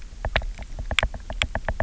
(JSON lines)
{"label": "biophony, knock", "recorder": "SoundTrap 300"}